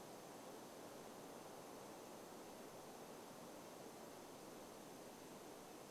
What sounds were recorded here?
forest ambience